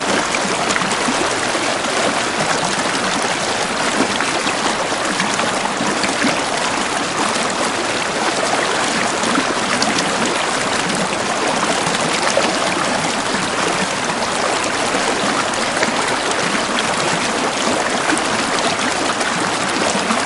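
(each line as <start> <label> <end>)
0.0 A river stream flows softly. 20.3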